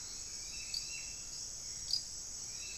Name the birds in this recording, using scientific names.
Momotus momota, Turdus hauxwelli